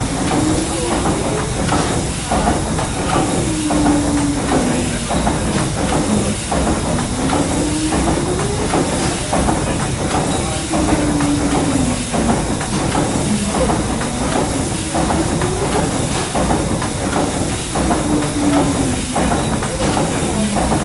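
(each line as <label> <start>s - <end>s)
The engine of a paddle steamer spins and whirs repeatedly. 0.0s - 20.8s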